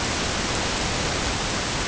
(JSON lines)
{"label": "ambient", "recorder": "HydroMoth"}